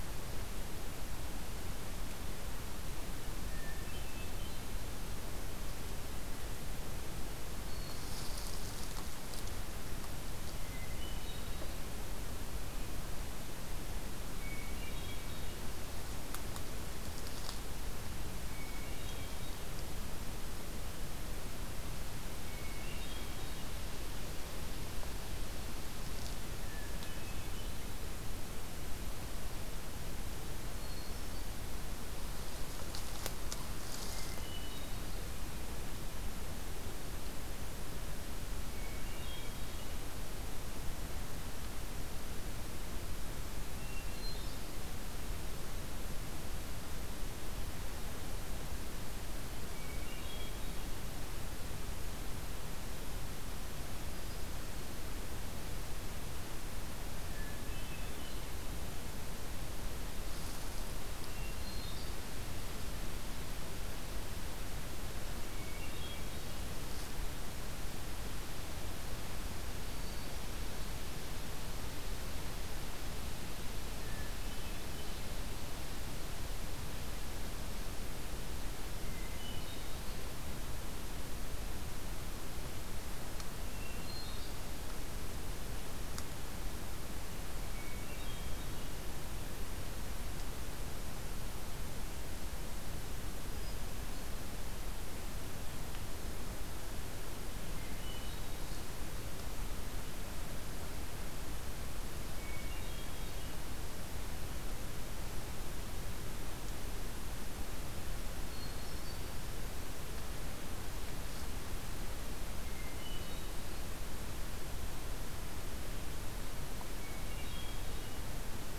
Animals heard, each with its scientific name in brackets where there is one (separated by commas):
Hermit Thrush (Catharus guttatus)